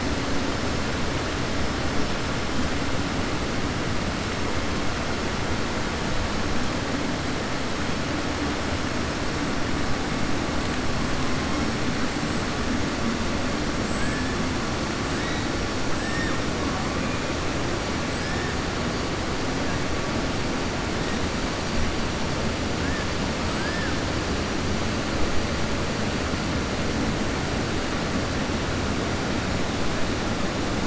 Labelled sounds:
23.5	24.0	killer whale, southern resident, 0.98 to 1.8 kHz

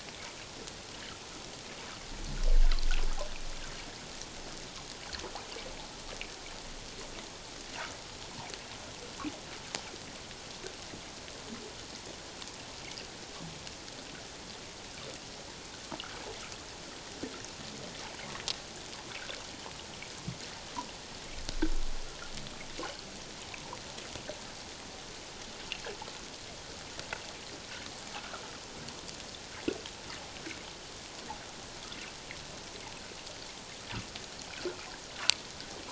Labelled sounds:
28.2	28.4	water noise, 1.2 to 1.7 kHz

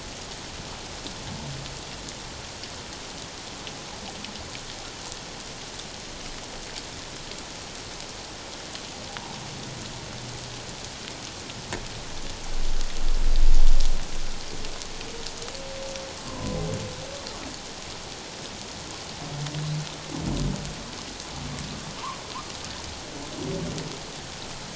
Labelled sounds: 16.2	16.6	humpback whale, 0.97 to 1.1 kHz

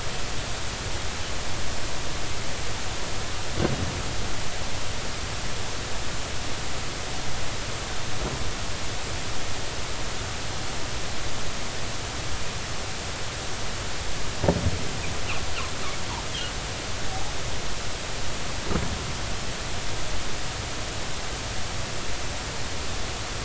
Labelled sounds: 17.1	17.3	humpback whale, 0.80 to 0.86 kHz

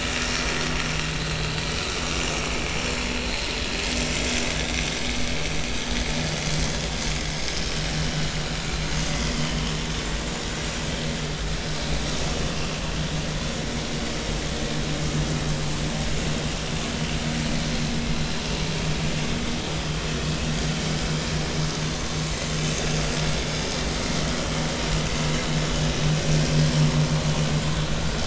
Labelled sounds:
3.2	3.5	vessel noise, 4.0 to 4.4 kHz
9.3	9.6	vessel noise, 2.9 to 3.4 kHz

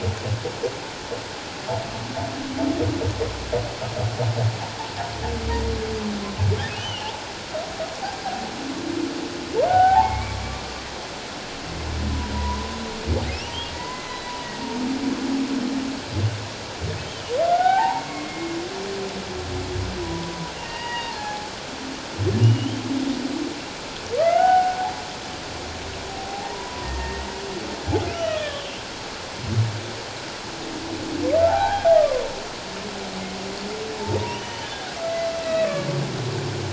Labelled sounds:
6.7	7.1	humpback whale, 2.8 to 3.1 kHz
9.7	10.8	humpback whale, 0.78 to 2.4 kHz
12.3	12.8	humpback whale, 0.91 to 1.1 kHz
13.7	14.7	humpback whale, 0.91 to 4.2 kHz
17.0	18.5	humpback whale, 0.78 to 3.3 kHz
20.0	21.5	humpback whale, 0.78 to 4.8 kHz
22.4	22.8	humpback whale, 2.8 to 3.3 kHz
24.2	24.8	humpback whale, 0.78 to 1.6 kHz
26.1	27.3	humpback whale, 0.78 to 1.9 kHz
28.1	28.6	humpback whale, 1.2 to 3.0 kHz
31.4	32.2	humpback whale, 0.78 to 1.8 kHz
34.0	34.7	humpback whale, 0.84 to 6.1 kHz
35.4	35.7	humpback whale, 2.5 to 2.7 kHz

